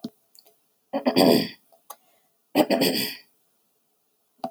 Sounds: Throat clearing